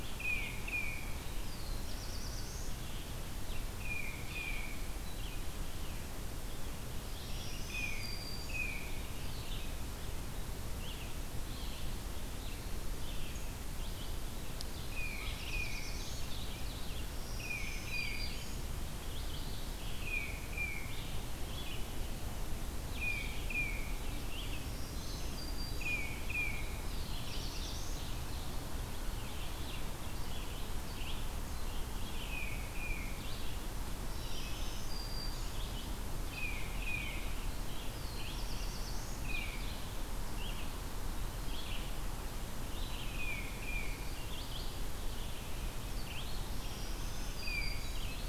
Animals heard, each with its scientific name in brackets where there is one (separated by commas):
Black-throated Blue Warbler (Setophaga caerulescens), Red-eyed Vireo (Vireo olivaceus), Tufted Titmouse (Baeolophus bicolor), Black-throated Green Warbler (Setophaga virens)